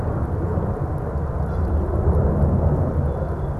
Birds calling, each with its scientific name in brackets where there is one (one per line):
Canada Goose (Branta canadensis)